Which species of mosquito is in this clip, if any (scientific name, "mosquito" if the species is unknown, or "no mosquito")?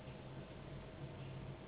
Anopheles gambiae s.s.